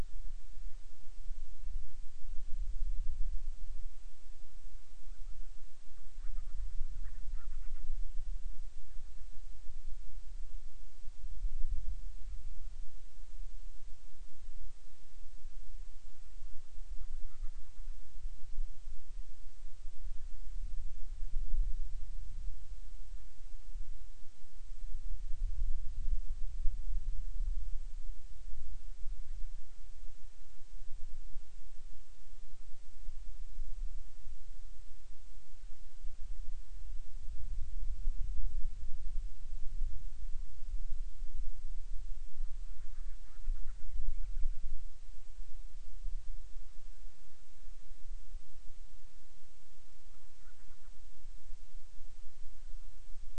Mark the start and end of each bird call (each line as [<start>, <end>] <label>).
[5.49, 7.99] Band-rumped Storm-Petrel (Hydrobates castro)
[16.89, 18.29] Band-rumped Storm-Petrel (Hydrobates castro)
[42.49, 44.79] Band-rumped Storm-Petrel (Hydrobates castro)
[50.29, 51.09] Band-rumped Storm-Petrel (Hydrobates castro)